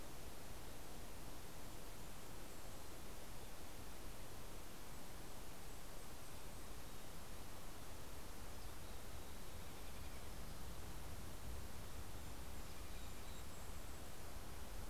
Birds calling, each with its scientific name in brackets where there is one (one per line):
Golden-crowned Kinglet (Regulus satrapa)
American Robin (Turdus migratorius)
Mountain Chickadee (Poecile gambeli)